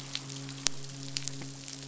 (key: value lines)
label: biophony, midshipman
recorder: SoundTrap 500